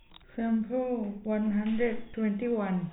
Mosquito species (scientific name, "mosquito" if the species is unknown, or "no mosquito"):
no mosquito